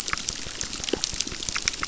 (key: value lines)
label: biophony, crackle
recorder: SoundTrap 600